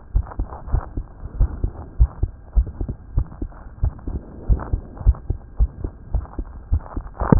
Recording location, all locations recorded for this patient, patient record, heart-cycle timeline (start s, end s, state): aortic valve (AV)
aortic valve (AV)+pulmonary valve (PV)+tricuspid valve (TV)+mitral valve (MV)
#Age: Child
#Sex: Female
#Height: 121.0 cm
#Weight: 21.9 kg
#Pregnancy status: False
#Murmur: Present
#Murmur locations: tricuspid valve (TV)
#Most audible location: tricuspid valve (TV)
#Systolic murmur timing: Early-systolic
#Systolic murmur shape: Plateau
#Systolic murmur grading: I/VI
#Systolic murmur pitch: Low
#Systolic murmur quality: Harsh
#Diastolic murmur timing: nan
#Diastolic murmur shape: nan
#Diastolic murmur grading: nan
#Diastolic murmur pitch: nan
#Diastolic murmur quality: nan
#Outcome: Abnormal
#Campaign: 2015 screening campaign
0.00	0.10	unannotated
0.10	0.26	S1
0.26	0.36	systole
0.36	0.48	S2
0.48	0.70	diastole
0.70	0.84	S1
0.84	0.94	systole
0.94	1.06	S2
1.06	1.36	diastole
1.36	1.52	S1
1.52	1.60	systole
1.60	1.72	S2
1.72	1.96	diastole
1.96	2.10	S1
2.10	2.20	systole
2.20	2.32	S2
2.32	2.54	diastole
2.54	2.70	S1
2.70	2.78	systole
2.78	2.88	S2
2.88	3.14	diastole
3.14	3.28	S1
3.28	3.39	systole
3.39	3.50	S2
3.50	3.80	diastole
3.80	3.94	S1
3.94	4.06	systole
4.06	4.20	S2
4.20	4.47	diastole
4.47	4.62	S1
4.62	4.70	systole
4.70	4.82	S2
4.82	5.02	diastole
5.02	5.16	S1
5.16	5.26	systole
5.26	5.38	S2
5.38	5.58	diastole
5.58	5.70	S1
5.70	5.80	systole
5.80	5.92	S2
5.92	6.12	diastole
6.12	6.24	S1
6.24	6.36	systole
6.36	6.48	S2
6.48	6.70	diastole
6.70	6.84	S1
6.84	6.94	systole
6.94	7.04	S2
7.04	7.39	unannotated